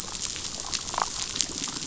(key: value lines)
label: biophony, damselfish
recorder: SoundTrap 500